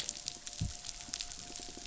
{"label": "biophony", "recorder": "SoundTrap 500"}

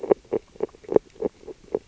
{"label": "biophony, grazing", "recorder": "SoundTrap 600 or HydroMoth"}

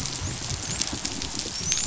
{"label": "biophony, dolphin", "recorder": "SoundTrap 500"}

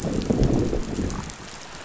{"label": "biophony, growl", "recorder": "SoundTrap 500"}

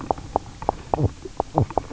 {"label": "biophony, knock croak", "recorder": "SoundTrap 300"}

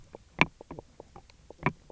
{"label": "biophony, knock croak", "recorder": "SoundTrap 300"}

